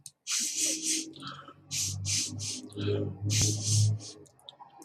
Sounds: Sniff